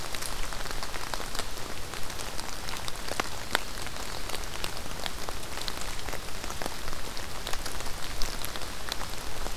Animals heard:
forest ambience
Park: Acadia National Park